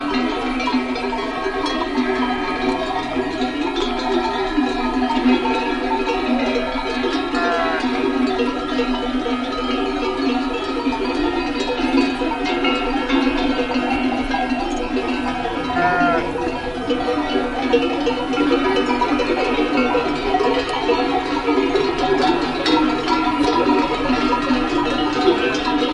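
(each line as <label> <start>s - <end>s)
A cowbell rings continuously. 0.0s - 25.9s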